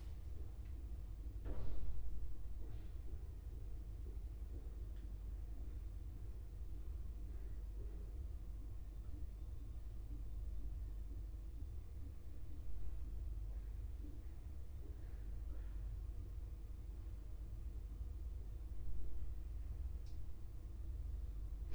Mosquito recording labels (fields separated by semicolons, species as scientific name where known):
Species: no mosquito; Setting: cup